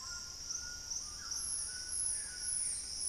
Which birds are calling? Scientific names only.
Thamnomanes ardesiacus, Lipaugus vociferans, Ramphastos tucanus, Cercomacra cinerascens